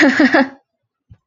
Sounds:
Laughter